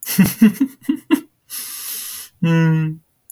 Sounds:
Laughter